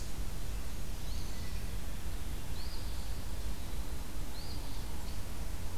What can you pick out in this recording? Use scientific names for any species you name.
Sayornis phoebe, Contopus virens